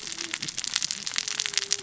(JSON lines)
{"label": "biophony, cascading saw", "recorder": "SoundTrap 600 or HydroMoth"}